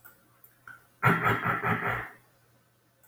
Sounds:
Throat clearing